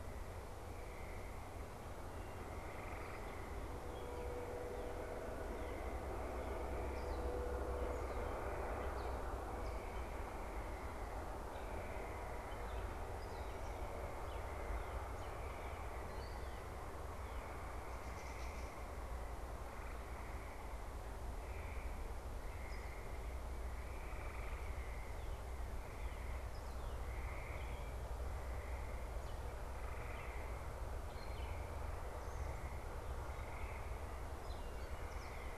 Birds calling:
Northern Cardinal (Cardinalis cardinalis), Gray Catbird (Dumetella carolinensis)

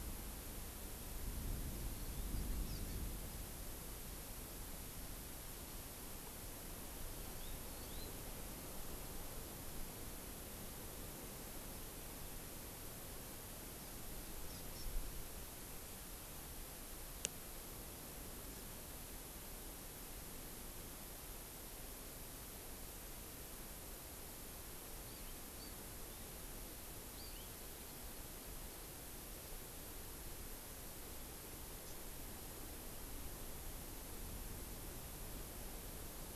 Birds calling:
Red-billed Leiothrix (Leiothrix lutea), Hawaii Amakihi (Chlorodrepanis virens)

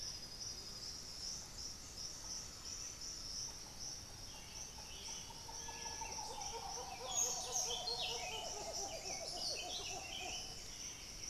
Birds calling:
Black-billed Thrush (Turdus ignobilis), Buff-throated Saltator (Saltator maximus), Undulated Tinamou (Crypturellus undulatus), White-winged Becard (Pachyramphus polychopterus)

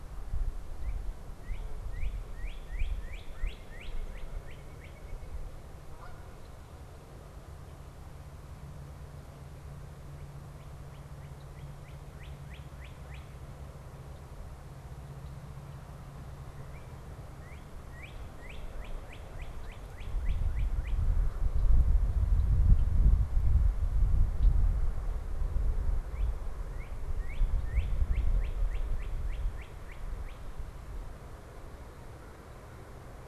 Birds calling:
Northern Cardinal (Cardinalis cardinalis), White-breasted Nuthatch (Sitta carolinensis), Red-winged Blackbird (Agelaius phoeniceus), American Crow (Corvus brachyrhynchos), Canada Goose (Branta canadensis)

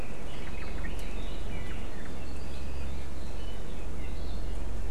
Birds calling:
Apapane (Himatione sanguinea), Omao (Myadestes obscurus), Red-billed Leiothrix (Leiothrix lutea)

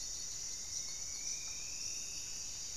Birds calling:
Buff-breasted Wren (Cantorchilus leucotis), unidentified bird, Striped Woodcreeper (Xiphorhynchus obsoletus)

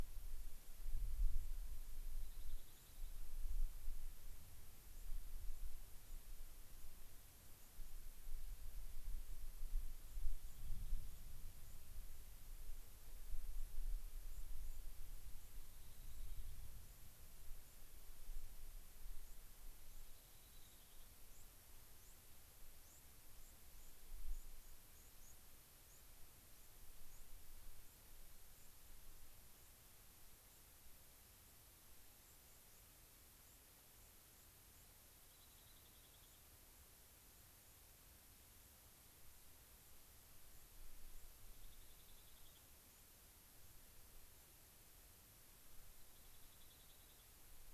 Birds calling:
White-crowned Sparrow (Zonotrichia leucophrys), Rock Wren (Salpinctes obsoletus)

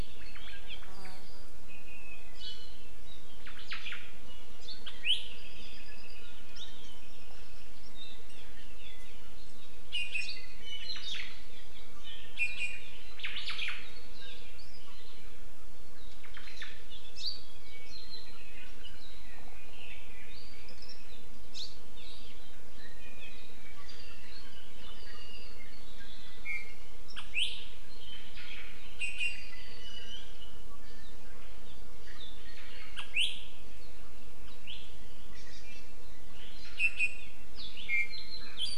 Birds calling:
Apapane (Himatione sanguinea), Hawaii Amakihi (Chlorodrepanis virens), Omao (Myadestes obscurus), Iiwi (Drepanis coccinea)

